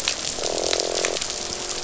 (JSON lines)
{"label": "biophony, croak", "recorder": "SoundTrap 500"}